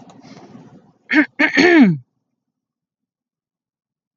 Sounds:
Throat clearing